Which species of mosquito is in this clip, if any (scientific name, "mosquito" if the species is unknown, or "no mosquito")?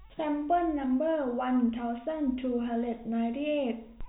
no mosquito